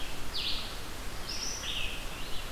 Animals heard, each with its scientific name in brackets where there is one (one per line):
Red-eyed Vireo (Vireo olivaceus)